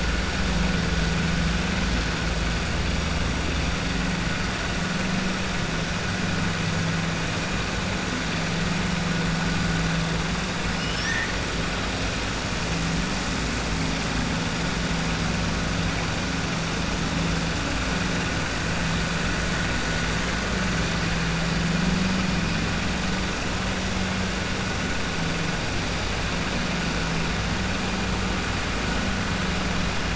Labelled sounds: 10.7	11.3	killer whale, southern resident, 1.6 to 3.7 kHz

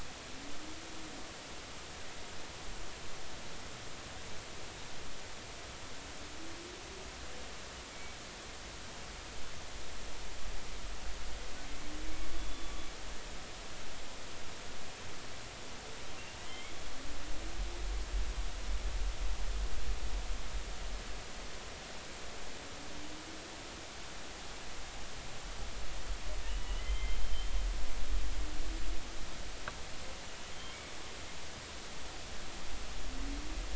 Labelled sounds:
7.9	8.2	humpback whale, 2.2 to 2.3 kHz
12.4	12.7	humpback whale, 3.4 to 3.5 kHz
16.5	16.7	humpback whale, 2.0 to 3.3 kHz
26.8	27.2	humpback whale, 2.0 to 3.2 kHz

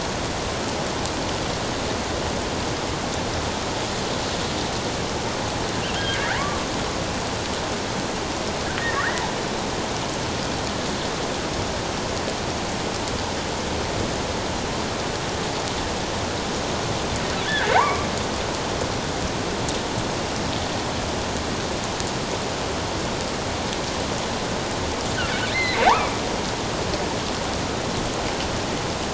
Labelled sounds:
6.0	6.4	killer whale, offshore, 1.3 to 2.1 kHz
9.0	9.2	killer whale, offshore, 1.3 to 2.1 kHz
17.5	18.1	killer whale, offshore, 0.78 to 2.4 kHz
25.5	26.1	killer whale, offshore, 0.78 to 4.2 kHz

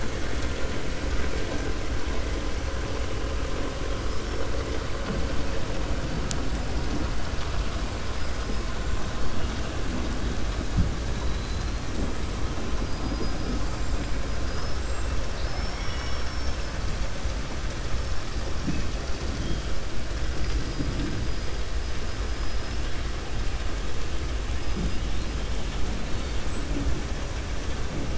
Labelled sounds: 8.1	8.6	killer whale, 4.3 to 5.4 kHz
11.2	11.8	killer whale, 3.3 to 4.3 kHz
12.8	13.6	killer whale, 4.1 to 5.3 kHz
14.4	14.8	killer whale, 4.9 to 5.9 kHz
15.2	16.7	killer whale, 0.99 to 6.2 kHz

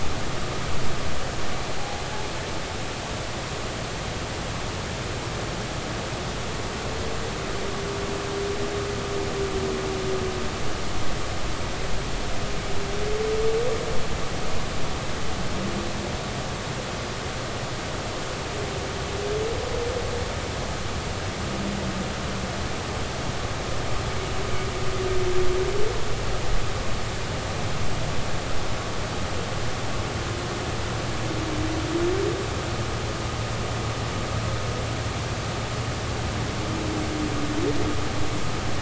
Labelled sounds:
2.8	3.0	humpback whale, 0.80 to 0.86 kHz

